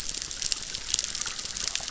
{"label": "biophony, chorus", "recorder": "SoundTrap 600"}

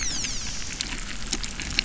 {"label": "biophony", "recorder": "SoundTrap 300"}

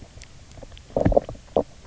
{"label": "biophony, knock croak", "recorder": "SoundTrap 300"}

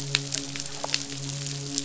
{"label": "biophony, midshipman", "recorder": "SoundTrap 500"}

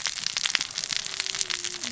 {"label": "biophony, cascading saw", "recorder": "SoundTrap 600 or HydroMoth"}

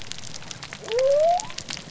{"label": "biophony", "recorder": "SoundTrap 300"}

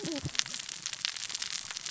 {"label": "biophony, cascading saw", "recorder": "SoundTrap 600 or HydroMoth"}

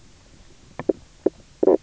{"label": "biophony, knock croak", "recorder": "SoundTrap 300"}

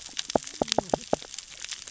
{"label": "biophony, cascading saw", "recorder": "SoundTrap 600 or HydroMoth"}
{"label": "biophony, knock", "recorder": "SoundTrap 600 or HydroMoth"}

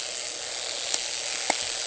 {"label": "anthrophony, boat engine", "recorder": "HydroMoth"}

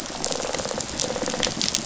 {"label": "biophony, rattle response", "recorder": "SoundTrap 500"}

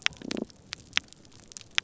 {"label": "biophony", "recorder": "SoundTrap 300"}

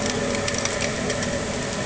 {"label": "anthrophony, boat engine", "recorder": "HydroMoth"}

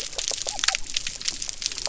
{"label": "biophony", "recorder": "SoundTrap 300"}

